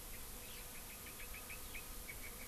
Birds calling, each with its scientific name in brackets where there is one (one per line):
Red-billed Leiothrix (Leiothrix lutea)